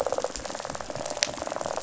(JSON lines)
{"label": "biophony, rattle", "recorder": "SoundTrap 500"}